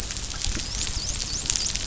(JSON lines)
{"label": "biophony, dolphin", "recorder": "SoundTrap 500"}